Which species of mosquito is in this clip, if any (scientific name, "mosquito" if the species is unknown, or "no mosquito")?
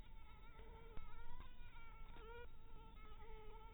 Anopheles dirus